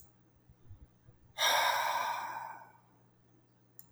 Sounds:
Sigh